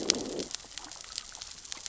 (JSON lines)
{"label": "biophony, growl", "recorder": "SoundTrap 600 or HydroMoth"}